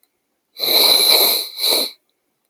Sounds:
Sniff